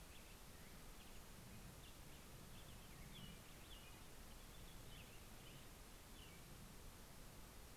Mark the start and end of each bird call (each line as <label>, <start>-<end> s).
Black-headed Grosbeak (Pheucticus melanocephalus), 0.5-5.2 s
American Robin (Turdus migratorius), 2.8-6.5 s